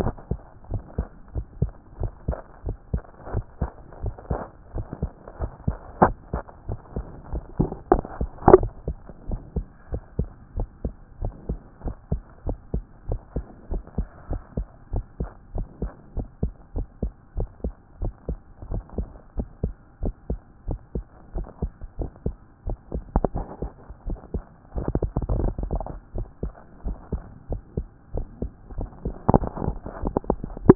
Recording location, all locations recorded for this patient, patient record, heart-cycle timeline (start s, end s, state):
mitral valve (MV)
aortic valve (AV)+pulmonary valve (PV)+mitral valve (MV)+other location+other location
#Age: Child
#Sex: Male
#Height: 129.0 cm
#Weight: 24.8 kg
#Pregnancy status: False
#Murmur: Absent
#Murmur locations: nan
#Most audible location: nan
#Systolic murmur timing: nan
#Systolic murmur shape: nan
#Systolic murmur grading: nan
#Systolic murmur pitch: nan
#Systolic murmur quality: nan
#Diastolic murmur timing: nan
#Diastolic murmur shape: nan
#Diastolic murmur grading: nan
#Diastolic murmur pitch: nan
#Diastolic murmur quality: nan
#Outcome: Abnormal
#Campaign: 2014 screening campaign
0.00	0.70	unannotated
0.70	0.82	S1
0.82	0.98	systole
0.98	1.06	S2
1.06	1.34	diastole
1.34	1.46	S1
1.46	1.60	systole
1.60	1.72	S2
1.72	2.00	diastole
2.00	2.12	S1
2.12	2.28	systole
2.28	2.38	S2
2.38	2.66	diastole
2.66	2.76	S1
2.76	2.92	systole
2.92	3.02	S2
3.02	3.32	diastole
3.32	3.44	S1
3.44	3.60	systole
3.60	3.70	S2
3.70	4.02	diastole
4.02	4.14	S1
4.14	4.30	systole
4.30	4.40	S2
4.40	4.74	diastole
4.74	4.86	S1
4.86	5.02	systole
5.02	5.10	S2
5.10	5.40	diastole
5.40	5.52	S1
5.52	5.66	systole
5.66	5.76	S2
5.76	6.00	diastole
6.00	6.14	S1
6.14	6.32	systole
6.32	6.42	S2
6.42	6.68	diastole
6.68	6.80	S1
6.80	6.96	systole
6.96	7.04	S2
7.04	7.32	diastole
7.32	7.44	S1
7.44	7.58	systole
7.58	7.70	S2
7.70	7.92	diastole
7.92	8.04	S1
8.04	8.20	systole
8.20	8.30	S2
8.30	8.59	diastole
8.59	8.70	S1
8.70	8.86	systole
8.86	8.96	S2
8.96	9.28	diastole
9.28	9.40	S1
9.40	9.56	systole
9.56	9.66	S2
9.66	9.92	diastole
9.92	10.02	S1
10.02	10.18	systole
10.18	10.28	S2
10.28	10.56	diastole
10.56	10.68	S1
10.68	10.84	systole
10.84	10.92	S2
10.92	11.22	diastole
11.22	11.34	S1
11.34	11.48	systole
11.48	11.58	S2
11.58	11.84	diastole
11.84	11.96	S1
11.96	12.10	systole
12.10	12.22	S2
12.22	12.46	diastole
12.46	12.58	S1
12.58	12.74	systole
12.74	12.84	S2
12.84	13.08	diastole
13.08	13.20	S1
13.20	13.34	systole
13.34	13.44	S2
13.44	13.70	diastole
13.70	13.82	S1
13.82	13.98	systole
13.98	14.08	S2
14.08	14.30	diastole
14.30	14.42	S1
14.42	14.56	systole
14.56	14.66	S2
14.66	14.92	diastole
14.92	15.04	S1
15.04	15.20	systole
15.20	15.30	S2
15.30	15.54	diastole
15.54	15.66	S1
15.66	15.82	systole
15.82	15.92	S2
15.92	16.16	diastole
16.16	16.28	S1
16.28	16.42	systole
16.42	16.52	S2
16.52	16.76	diastole
16.76	16.86	S1
16.86	17.02	systole
17.02	17.12	S2
17.12	17.36	diastole
17.36	17.48	S1
17.48	17.64	systole
17.64	17.74	S2
17.74	18.02	diastole
18.02	18.14	S1
18.14	18.28	systole
18.28	18.38	S2
18.38	18.70	diastole
18.70	18.84	S1
18.84	18.98	systole
18.98	19.08	S2
19.08	19.36	diastole
19.36	19.48	S1
19.48	19.62	systole
19.62	19.74	S2
19.74	20.02	diastole
20.02	20.14	S1
20.14	20.30	systole
20.30	20.40	S2
20.40	20.68	diastole
20.68	20.80	S1
20.80	20.94	systole
20.94	21.04	S2
21.04	21.34	diastole
21.34	21.46	S1
21.46	21.62	systole
21.62	21.72	S2
21.72	21.98	diastole
21.98	22.10	S1
22.10	22.24	systole
22.24	22.36	S2
22.36	22.66	diastole
22.66	22.78	S1
22.78	22.94	systole
22.94	23.04	S2
23.04	23.34	diastole
23.34	23.46	S1
23.46	23.62	systole
23.62	23.70	S2
23.70	24.06	diastole
24.06	24.18	S1
24.18	24.34	systole
24.34	24.44	S2
24.44	24.76	diastole
24.76	30.75	unannotated